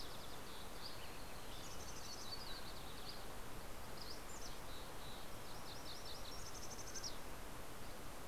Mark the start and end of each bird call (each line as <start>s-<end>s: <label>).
0.0s-8.3s: Mountain Chickadee (Poecile gambeli)
0.6s-1.4s: Dusky Flycatcher (Empidonax oberholseri)
1.3s-3.7s: Yellow-rumped Warbler (Setophaga coronata)
2.7s-4.5s: Dusky Flycatcher (Empidonax oberholseri)
5.3s-6.7s: MacGillivray's Warbler (Geothlypis tolmiei)
7.6s-8.3s: Dusky Flycatcher (Empidonax oberholseri)